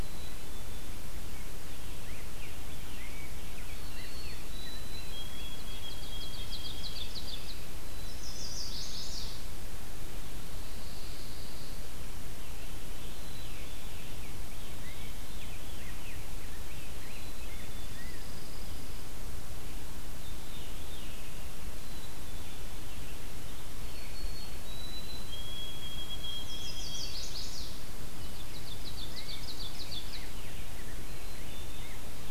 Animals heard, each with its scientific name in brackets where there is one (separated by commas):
Chestnut-sided Warbler (Setophaga pensylvanica), Ovenbird (Seiurus aurocapilla), Rose-breasted Grosbeak (Pheucticus ludovicianus), Pine Warbler (Setophaga pinus), White-throated Sparrow (Zonotrichia albicollis), Black-capped Chickadee (Poecile atricapillus), Veery (Catharus fuscescens)